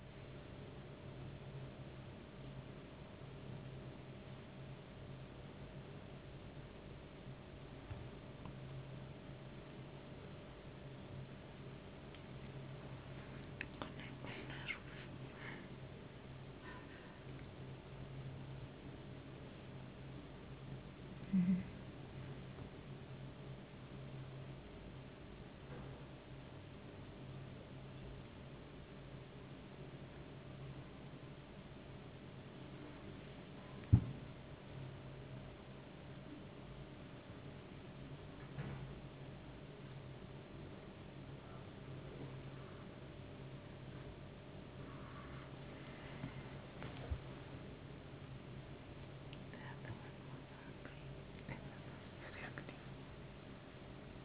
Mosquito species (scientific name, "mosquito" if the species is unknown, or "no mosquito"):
no mosquito